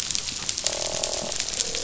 {"label": "biophony, croak", "recorder": "SoundTrap 500"}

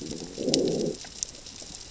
{"label": "biophony, growl", "recorder": "SoundTrap 600 or HydroMoth"}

